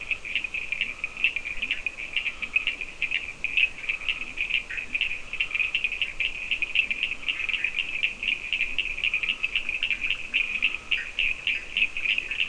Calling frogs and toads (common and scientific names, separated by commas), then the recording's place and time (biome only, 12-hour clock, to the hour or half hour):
Scinax perereca, Leptodactylus latrans, Cochran's lime tree frog (Sphaenorhynchus surdus), Bischoff's tree frog (Boana bischoffi)
Atlantic Forest, 4am